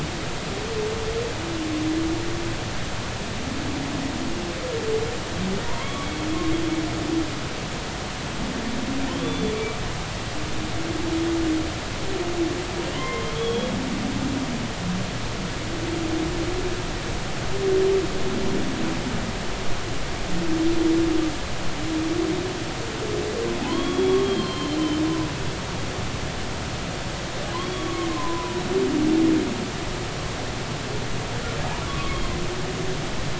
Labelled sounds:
5.6	6.2	humpback whale, 0.90 to 3.5 kHz
9.2	9.5	humpback whale, 3.4 to 3.5 kHz
12.9	13.7	humpback whale, 0.96 to 3.5 kHz
23.7	24.8	humpback whale, 0.93 to 4.4 kHz
27.6	28.6	humpback whale, 0.93 to 3.4 kHz
32.0	32.3	humpback whale, 3.2 to 3.4 kHz
32.8	33.2	humpback whale, 1.0 to 1.2 kHz

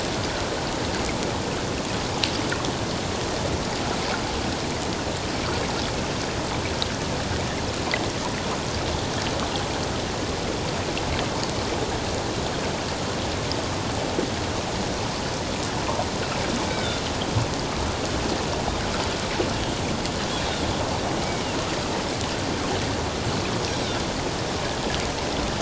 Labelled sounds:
16.7	17.0	Pacific white-sided dolphin, 1.4 to 3.9 kHz

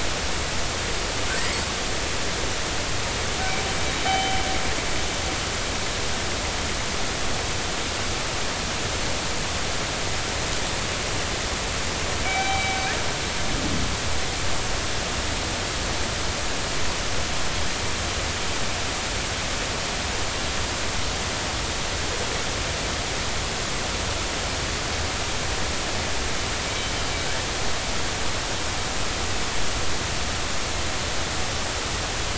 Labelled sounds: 1.4	1.6	killer whale, northern resident, G clan, 1.8 to 2.3 kHz
4.1	4.4	killer whale, northern resident, G clan, 0.80 to 3.1 kHz
12.2	12.8	killer whale, northern resident, G clan, 0.80 to 3.9 kHz

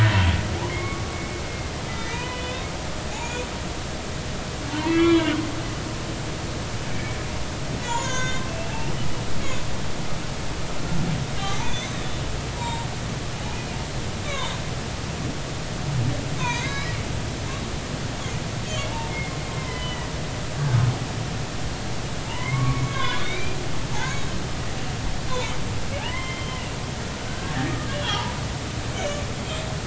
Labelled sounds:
0.7	1.2	humpback whale, 1.1 to 2.3 kHz
1.9	3.5	humpback whale, 0.90 to 7.1 kHz
4.8	6.3	humpback whale, 1.4 to 3.4 kHz
7.8	8.7	humpback whale, 0.83 to 7.1 kHz
11.6	12.9	humpback whale, 0.86 to 6.2 kHz
14.2	14.6	humpback whale, 0.86 to 4.0 kHz
16.4	16.9	humpback whale, 0.90 to 6.4 kHz
18.6	20.1	humpback whale, 0.83 to 4.5 kHz
22.2	23.6	humpback whale, 0.83 to 4.0 kHz
23.9	24.3	humpback whale, 1.4 to 3.9 kHz
26.0	26.6	humpback whale, 0.80 to 3.2 kHz
27.3	28.3	humpback whale, 0.80 to 3.5 kHz
28.9	29.2	humpback whale, 2.2 to 3.2 kHz

